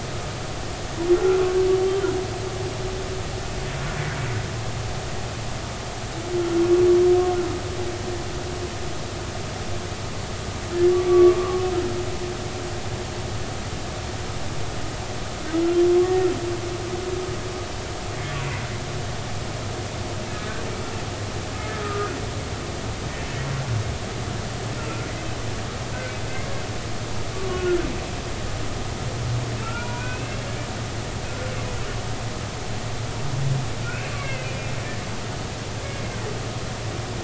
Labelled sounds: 1.1	1.4	humpback whale, 1.3 to 1.5 kHz
6.4	6.7	humpback whale, 1.3 to 1.4 kHz
10.9	11.6	humpback whale, 0.99 to 1.2 kHz
21.8	22.2	humpback whale, 1.2 to 1.5 kHz
26.3	26.6	humpback whale, 1.5 to 1.8 kHz
27.5	27.8	humpback whale, 1.3 to 3.0 kHz
29.6	30.4	humpback whale, 0.86 to 2.9 kHz
33.8	34.7	humpback whale, 1.3 to 2.8 kHz

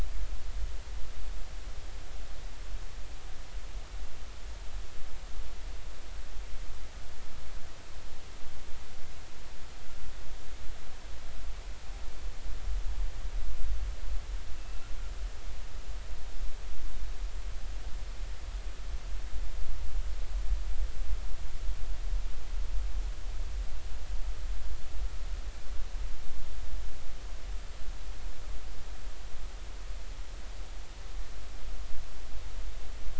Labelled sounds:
14.6	14.9	killer whale, northern resident, 2.6 to 2.7 kHz

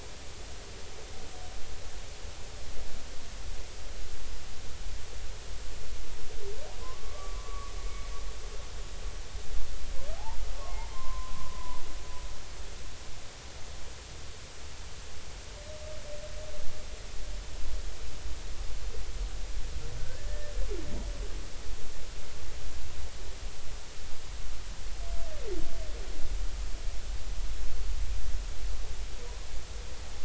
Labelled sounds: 6.8	8.0	humpback whale, 0.96 to 2.3 kHz
10.9	11.8	humpback whale, 0.93 to 2.1 kHz
20.2	20.5	humpback whale, 1.7 to 1.9 kHz

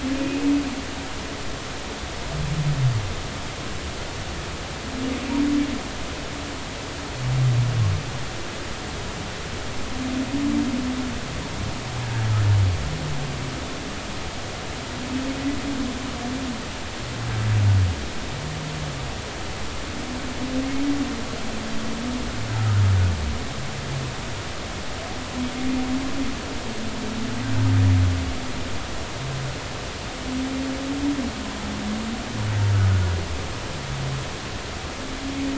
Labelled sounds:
0.1	0.5	humpback whale, 2.4 to 2.6 kHz

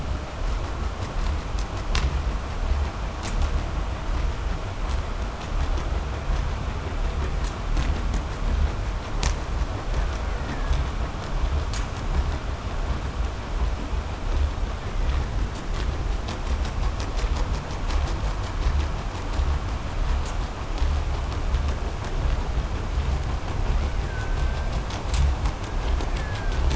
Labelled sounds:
9.6	11.0	killer whale, 1.1 to 3.0 kHz
14.7	15.7	killer whale, Bigg's (transient), 0.66 to 2.5 kHz
23.7	25.2	killer whale, Bigg's (transient), call T07, 1.0 to 2.4 kHz
25.5	26.6	killer whale, Bigg's (transient), 0.93 to 2.2 kHz

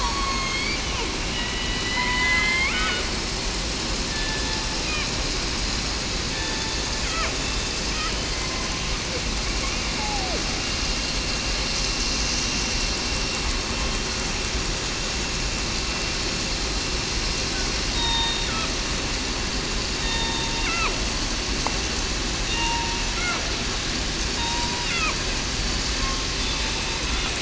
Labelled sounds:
0.0	0.6	killer whale, southern resident, 1.1 to 8.0 kHz
1.3	2.5	killer whale, southern resident, 0.94 to 3.0 kHz
4.1	4.5	killer whale, southern resident, 1.7 to 1.8 kHz
7.4	7.7	killer whale, southern resident, 3.5 to 3.6 kHz
10.0	10.4	killer whale, southern resident, 0.61 to 0.87 kHz
17.9	18.5	killer whale, southern resident, 0.89 to 3.8 kHz
20.0	20.5	killer whale, southern resident, 1.8 to 3.7 kHz
22.4	22.8	killer whale, southern resident, 2.7 to 2.8 kHz
24.4	24.9	killer whale, southern resident, 0.89 to 1.0 kHz

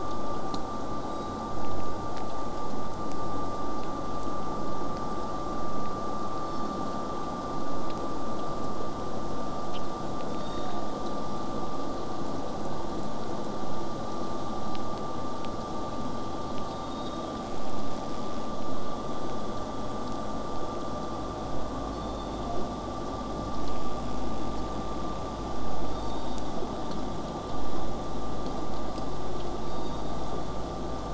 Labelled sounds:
1.0	1.4	killer whale, southern resident, J pod, 3.6 to 8.0 kHz
6.4	6.8	killer whale, southern resident, J pod, 3.3 to 8.0 kHz
10.3	10.9	killer whale, southern resident, J pod, call S06, 3.4 to 8.0 kHz
16.7	17.3	killer whale, southern resident, J pod, 3.5 to 4.8 kHz

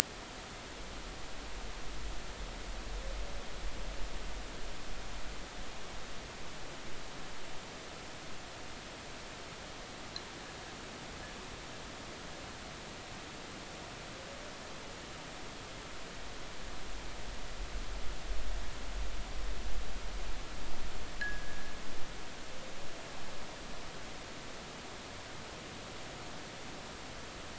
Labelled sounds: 21.2	21.7	fishing gear, 1.5 to 1.9 kHz

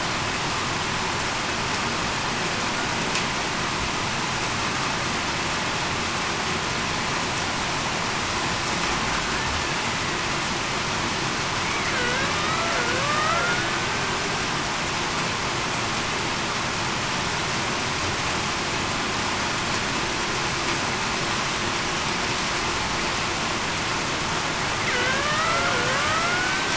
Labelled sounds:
11.9	13.7	killer whale, Bigg's (transient), 1.1 to 1.7 kHz
24.9	25.6	killer whale, Bigg's (transient), 1.5 to 2.1 kHz
25.9	26.7	killer whale, Bigg's (transient), 1.1 to 1.6 kHz

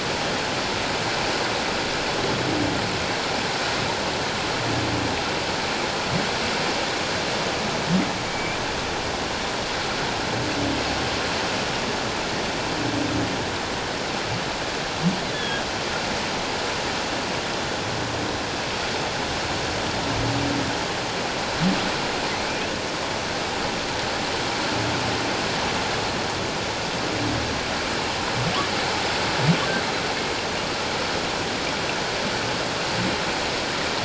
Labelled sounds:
8.3	8.6	humpback whale, 2.2 to 2.5 kHz
15.3	15.6	humpback whale, 1.6 to 3.5 kHz
22.5	22.7	humpback whale, 2.3 to 2.8 kHz

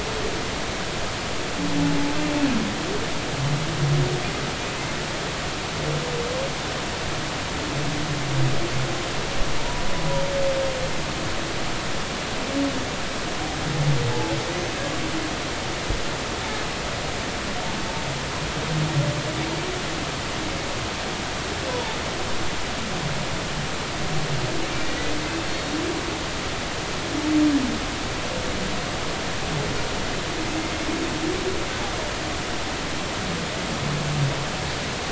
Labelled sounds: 4.6	4.9	humpback whale, 2.4 to 2.7 kHz
14.1	14.3	humpback whale, 0.83 to 0.96 kHz
21.7	22.0	humpback whale, 0.83 to 1.0 kHz
24.8	25.1	humpback whale, 1.9 to 2.0 kHz

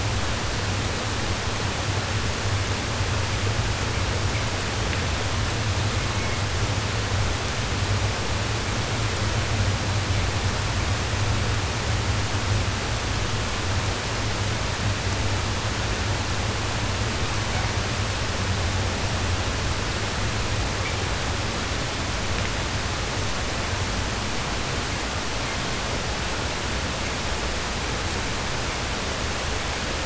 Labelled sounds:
5.8	6.5	killer whale, southern resident, 0.33 to 2.8 kHz

